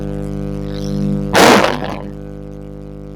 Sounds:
Sigh